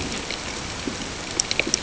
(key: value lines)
label: ambient
recorder: HydroMoth